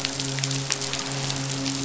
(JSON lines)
{"label": "biophony, midshipman", "recorder": "SoundTrap 500"}